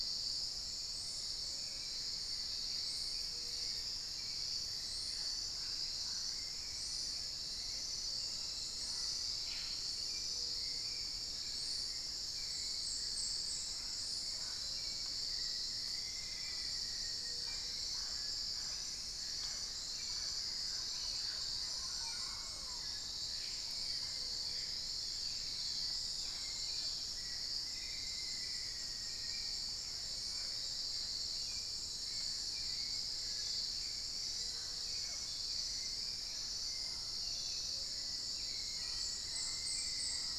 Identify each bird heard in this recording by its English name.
Plain-throated Antwren, Mealy Parrot, Hauxwell's Thrush, Plumbeous Pigeon, Black-faced Antthrush, Long-winged Antwren